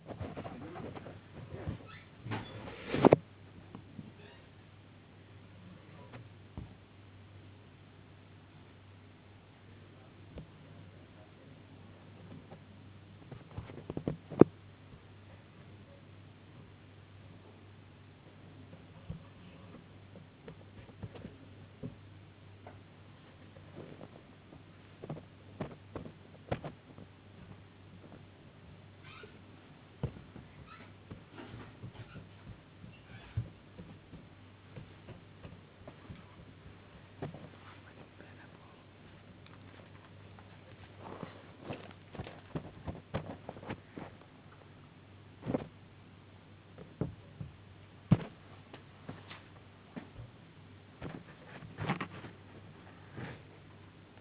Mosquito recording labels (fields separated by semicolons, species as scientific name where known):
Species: no mosquito; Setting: insect culture